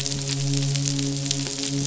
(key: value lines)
label: biophony, midshipman
recorder: SoundTrap 500